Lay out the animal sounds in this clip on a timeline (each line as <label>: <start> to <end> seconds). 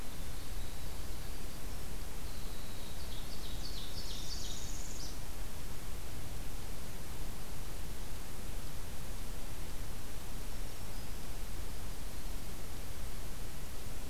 Winter Wren (Troglodytes hiemalis): 0.0 to 3.4 seconds
Ovenbird (Seiurus aurocapilla): 3.1 to 4.6 seconds
Northern Parula (Setophaga americana): 4.0 to 5.2 seconds
Black-throated Green Warbler (Setophaga virens): 10.3 to 11.2 seconds